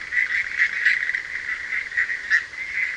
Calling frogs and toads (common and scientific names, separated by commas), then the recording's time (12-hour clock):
Bischoff's tree frog (Boana bischoffi)
2:15am